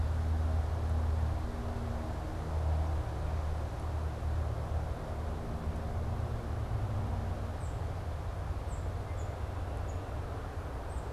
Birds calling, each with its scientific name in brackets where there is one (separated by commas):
Tufted Titmouse (Baeolophus bicolor)